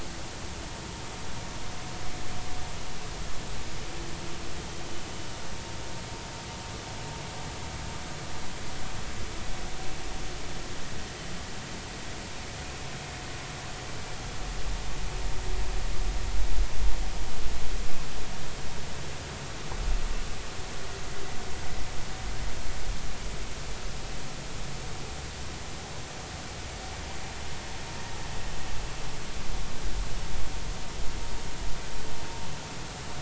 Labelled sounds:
5.1	5.4	vessel noise, 2.9 to 3.0 kHz

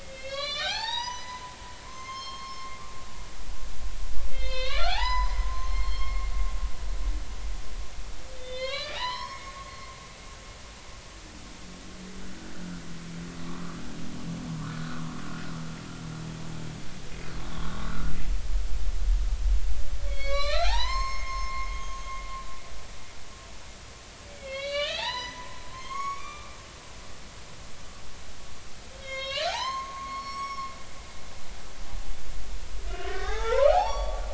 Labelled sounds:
0.0	1.6	humpback whale, 0.80 to 7.4 kHz
1.9	6.3	humpback whale, 0.80 to 6.5 kHz
8.3	9.4	humpback whale, 0.80 to 5.5 kHz
9.7	9.9	humpback whale, 4.2 to 4.3 kHz
14.8	15.1	humpback whale, 1.0 to 1.5 kHz
20.1	22.0	humpback whale, 0.80 to 7.6 kHz
24.3	26.6	humpback whale, 0.80 to 6.9 kHz
29.0	30.7	humpback whale, 0.80 to 6.6 kHz
33.1	34.2	humpback whale, 0.80 to 5.8 kHz

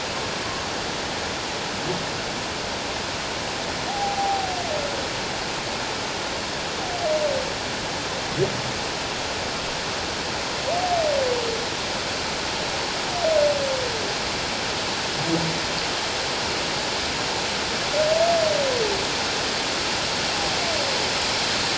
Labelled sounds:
3.9	4.5	humpback whale, 0.78 to 0.88 kHz

